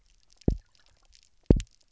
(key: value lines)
label: biophony, double pulse
recorder: SoundTrap 300